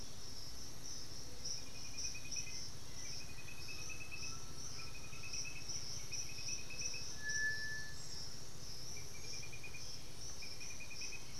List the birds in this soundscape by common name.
unidentified bird, Undulated Tinamou, White-winged Becard